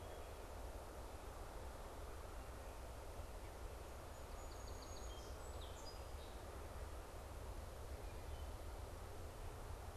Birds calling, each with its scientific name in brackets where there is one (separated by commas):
Song Sparrow (Melospiza melodia)